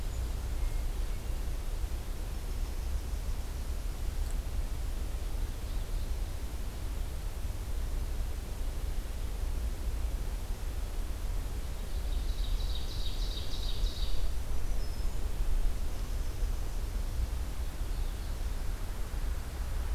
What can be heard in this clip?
Yellow-rumped Warbler, Ovenbird, Black-throated Green Warbler